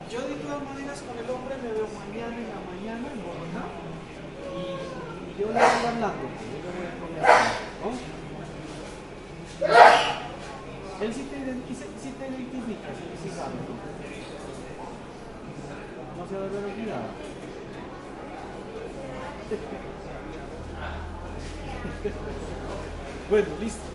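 People talking and a TV playing in the distance. 0:00.0 - 0:23.9
A person is talking loudly and continuously in the distance. 0:00.0 - 0:08.3
A person sneezes loudly in the distance. 0:05.4 - 0:06.3
A person sneezes loudly in the distance. 0:07.2 - 0:07.7
A person sneezes loudly in the distance. 0:09.6 - 0:10.2
A person is talking loudly and continuously in the distance. 0:11.0 - 0:14.1
A person is talking loudly and continuously in the distance. 0:16.2 - 0:17.3
A man laughs quietly in the distance. 0:19.4 - 0:20.2
A man laughs quietly in the distance. 0:21.7 - 0:22.8
Someone is speaking quietly. 0:23.3 - 0:23.9

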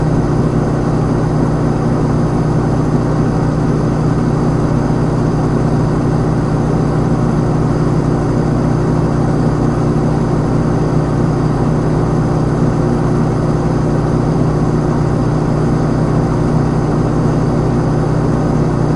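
A fridge hums continuously with a steady, low-frequency droning sound. 0:00.0 - 0:19.0

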